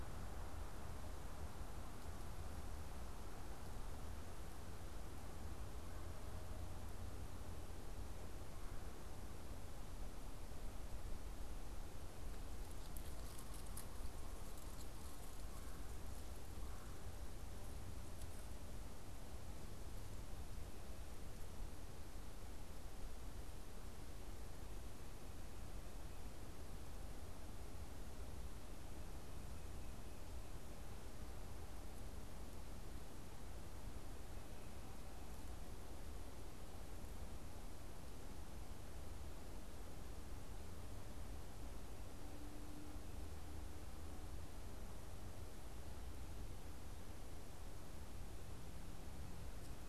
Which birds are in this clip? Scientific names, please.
Melanerpes carolinus